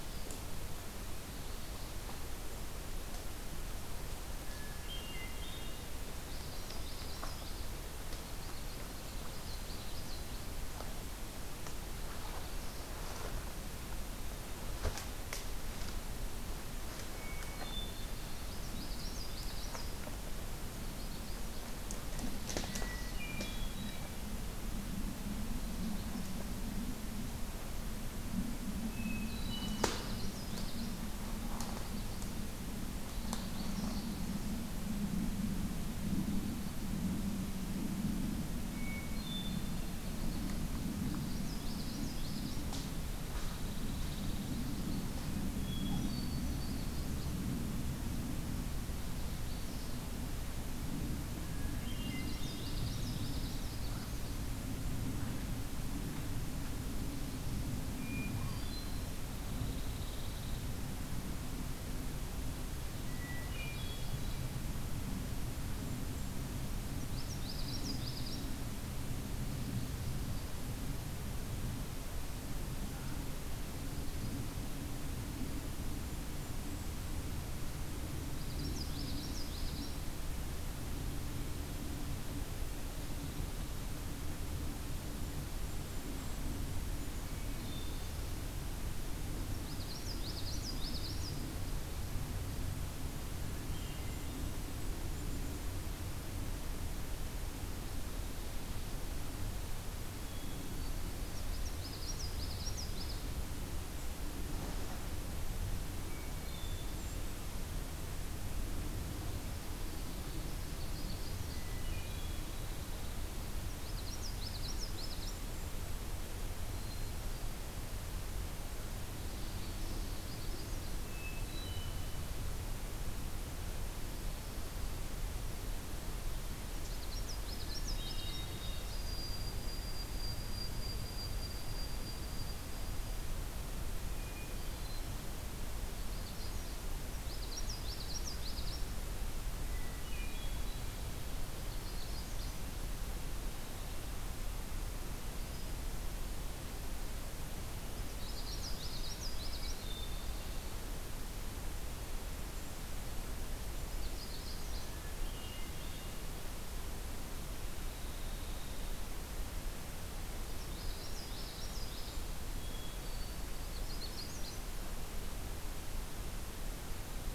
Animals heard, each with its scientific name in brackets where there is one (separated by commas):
Pine Warbler (Setophaga pinus), White-throated Sparrow (Zonotrichia albicollis), Hermit Thrush (Catharus guttatus), Magnolia Warbler (Setophaga magnolia), Common Yellowthroat (Geothlypis trichas), Golden-crowned Kinglet (Regulus satrapa)